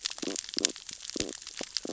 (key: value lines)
label: biophony, stridulation
recorder: SoundTrap 600 or HydroMoth